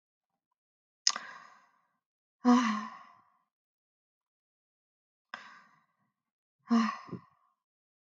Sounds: Sigh